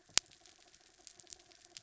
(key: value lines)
label: anthrophony, mechanical
recorder: SoundTrap 300